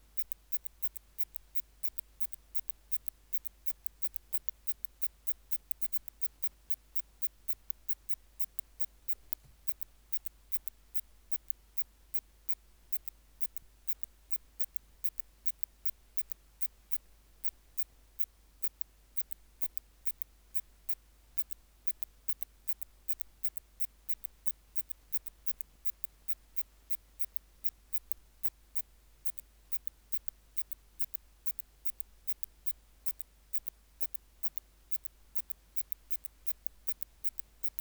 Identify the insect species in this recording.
Phaneroptera falcata